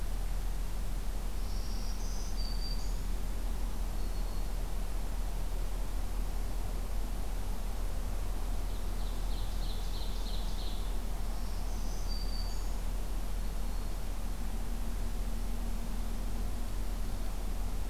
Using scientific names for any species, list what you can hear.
Setophaga virens, Seiurus aurocapilla